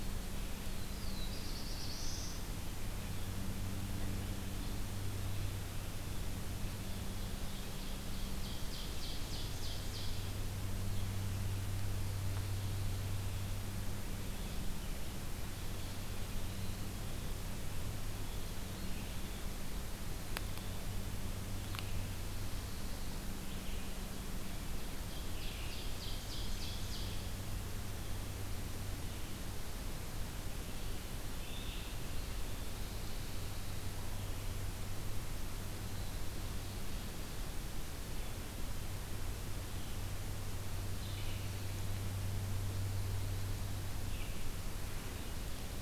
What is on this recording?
Red-eyed Vireo, Black-throated Blue Warbler, Ovenbird